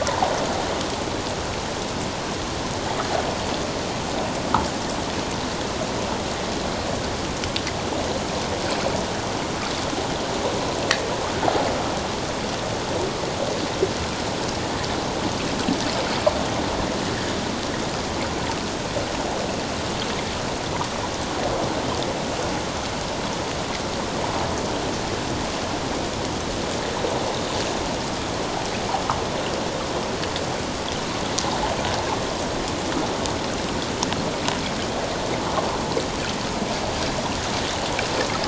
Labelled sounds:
0.1	0.3	water noise, 0.78 to 1.0 kHz

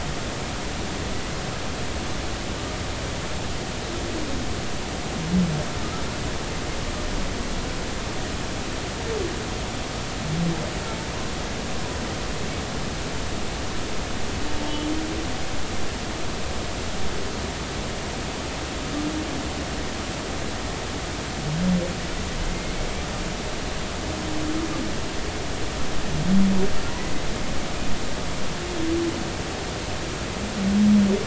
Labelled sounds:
14.6	14.9	humpback whale, 3.2 to 3.4 kHz
22.5	22.8	humpback whale, 2.0 to 2.2 kHz

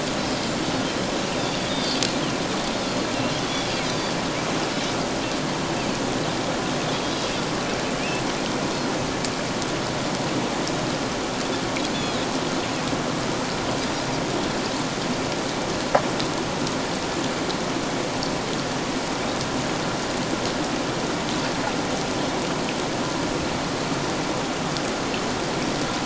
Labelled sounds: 1.4	2.0	Pacific white-sided dolphin, 3.3 to 4.9 kHz
3.9	4.2	Pacific white-sided dolphin, 3.4 to 4.8 kHz

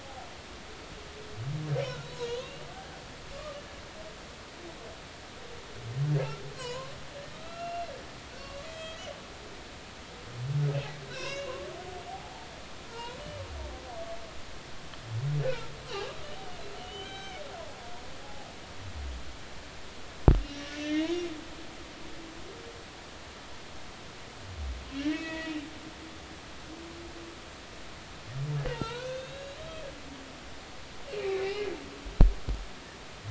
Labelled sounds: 2.0	2.5	humpback whale, 2.7 to 4.2 kHz
3.3	3.6	humpback whale, 1.1 to 1.3 kHz
6.1	6.9	humpback whale, 0.93 to 7.2 kHz
7.3	7.9	humpback whale, 1.2 to 2.8 kHz
8.6	9.0	humpback whale, 1.9 to 7.1 kHz
11.1	12.5	humpback whale, 0.80 to 5.7 kHz
12.9	13.2	humpback whale, 0.86 to 1.1 kHz
15.4	16.1	humpback whale, 1.3 to 3.2 kHz
16.8	17.4	humpback whale, 1.5 to 4.0 kHz
18.2	18.5	humpback whale, 0.80 to 0.90 kHz
20.5	21.1	humpback whale, 1.7 to 3.6 kHz
25.0	25.6	humpback whale, 1.6 to 2.7 kHz
28.7	29.8	humpback whale, 0.86 to 6.5 kHz
31.2	31.7	humpback whale, 2.0 to 3.0 kHz

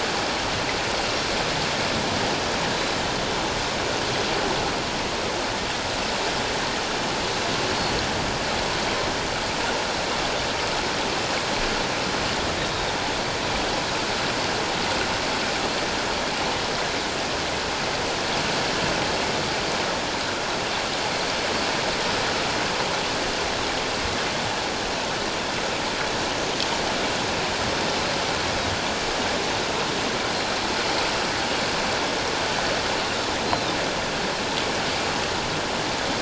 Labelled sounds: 12.6	12.9	Pacific white-sided dolphin, 3.6 to 3.8 kHz

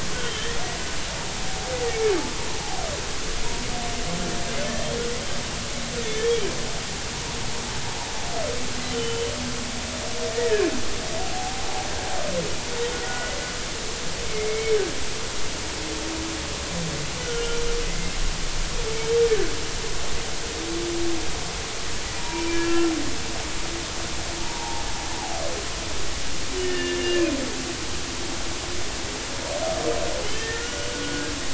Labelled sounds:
0.1	0.5	humpback whale, 3.0 to 3.2 kHz
8.9	9.3	humpback whale, 2.9 to 3.1 kHz
10.3	10.7	humpback whale, 1.5 to 2.0 kHz
11.2	11.6	humpback whale, 0.80 to 0.90 kHz
13.0	13.3	humpback whale, 1.3 to 1.5 kHz
14.5	14.8	humpback whale, 2.1 to 2.3 kHz
17.2	17.6	humpback whale, 1.3 to 3.1 kHz
19.3	19.5	humpback whale, 1.5 to 1.8 kHz
22.2	22.9	humpback whale, 0.90 to 2.4 kHz
24.4	24.8	humpback whale, 0.80 to 0.99 kHz
26.6	27.3	humpback whale, 1.7 to 3.0 kHz
30.2	31.3	humpback whale, 1.3 to 3.2 kHz

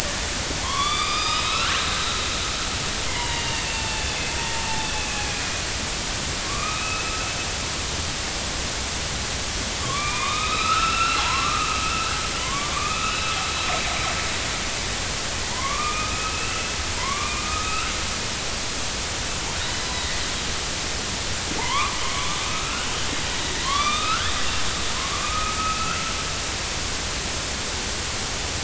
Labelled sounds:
1.4	1.8	killer whale, northern resident, A clan, AB subclan, 1.1 to 4.2 kHz
3.1	4.1	killer whale, northern resident, A clan, AB subclan, 0.80 to 4.6 kHz
4.8	5.5	killer whale, northern resident, A clan, AB subclan, 2.3 to 2.7 kHz
6.4	7.2	killer whale, northern resident, A clan, AB subclan, 1.0 to 2.6 kHz
9.8	11.7	killer whale, northern resident, A clan, AB subclan, 0.80 to 4.1 kHz
12.4	13.3	killer whale, northern resident, A clan, AB subclan, 0.93 to 4.0 kHz
15.5	16.6	killer whale, northern resident, A clan, AB subclan, 0.83 to 2.8 kHz
17.0	17.9	killer whale, northern resident, A clan, AB subclan, 0.90 to 2.5 kHz
19.8	20.1	killer whale, northern resident, A clan, AB subclan, 3.7 to 4.1 kHz
21.6	22.9	killer whale, northern resident, A clan, AB subclan, 0.80 to 2.5 kHz
23.6	24.3	killer whale, northern resident, A clan, AB subclan, 0.99 to 4.0 kHz
25.0	26.0	killer whale, northern resident, A clan, AB subclan, 0.96 to 2.7 kHz

